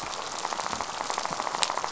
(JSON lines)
{"label": "biophony, rattle", "recorder": "SoundTrap 500"}